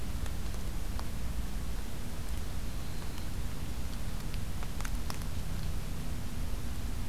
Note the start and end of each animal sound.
2.5s-3.6s: Black-throated Green Warbler (Setophaga virens)

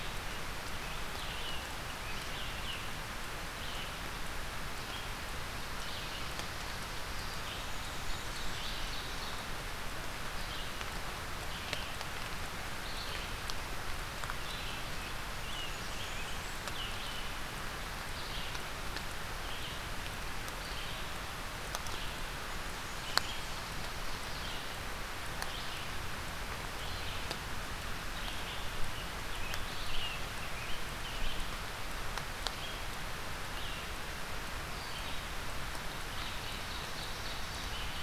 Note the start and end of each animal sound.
0.0s-38.0s: Red-eyed Vireo (Vireo olivaceus)
0.7s-2.9s: Scarlet Tanager (Piranga olivacea)
7.3s-8.9s: Blackburnian Warbler (Setophaga fusca)
7.5s-9.6s: Ovenbird (Seiurus aurocapilla)
14.6s-17.0s: Scarlet Tanager (Piranga olivacea)
15.0s-16.7s: Blackburnian Warbler (Setophaga fusca)
22.2s-23.4s: Blackburnian Warbler (Setophaga fusca)
28.6s-31.4s: Scarlet Tanager (Piranga olivacea)
35.8s-38.0s: Ovenbird (Seiurus aurocapilla)

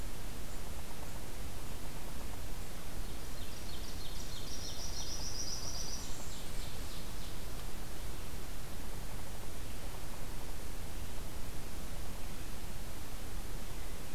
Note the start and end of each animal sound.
3.0s-5.1s: Ovenbird (Seiurus aurocapilla)
4.4s-6.7s: Blackburnian Warbler (Setophaga fusca)
5.8s-7.5s: Ovenbird (Seiurus aurocapilla)

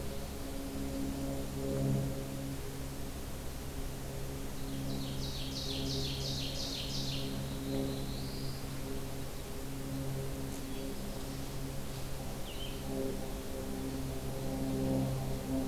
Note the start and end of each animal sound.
4.4s-7.4s: Ovenbird (Seiurus aurocapilla)
7.4s-8.6s: Black-throated Blue Warbler (Setophaga caerulescens)
12.3s-13.0s: Blue-headed Vireo (Vireo solitarius)

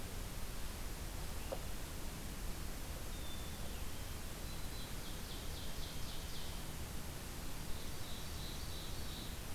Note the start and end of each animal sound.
2.9s-4.3s: Black-capped Chickadee (Poecile atricapillus)
4.1s-5.1s: Black-throated Green Warbler (Setophaga virens)
4.8s-6.7s: Ovenbird (Seiurus aurocapilla)
7.4s-9.5s: Ovenbird (Seiurus aurocapilla)

